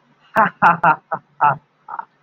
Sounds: Laughter